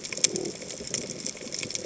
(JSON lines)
{"label": "biophony", "recorder": "HydroMoth"}